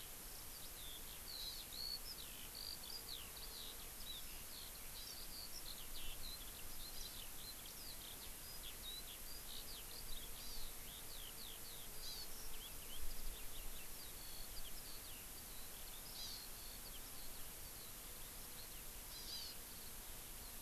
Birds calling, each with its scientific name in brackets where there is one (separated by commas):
Eurasian Skylark (Alauda arvensis), Hawaii Amakihi (Chlorodrepanis virens)